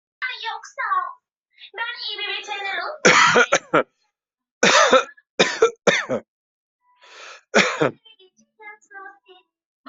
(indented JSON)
{
  "expert_labels": [
    {
      "quality": "ok",
      "cough_type": "unknown",
      "dyspnea": false,
      "wheezing": false,
      "stridor": false,
      "choking": false,
      "congestion": false,
      "nothing": true,
      "diagnosis": "healthy cough",
      "severity": "pseudocough/healthy cough"
    }
  ],
  "age": 34,
  "gender": "male",
  "respiratory_condition": false,
  "fever_muscle_pain": false,
  "status": "healthy"
}